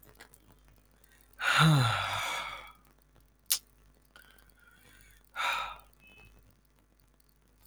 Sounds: Sigh